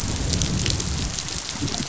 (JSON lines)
{"label": "biophony, growl", "recorder": "SoundTrap 500"}